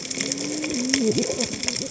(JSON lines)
{"label": "biophony, cascading saw", "recorder": "HydroMoth"}